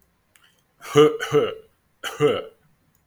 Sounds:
Cough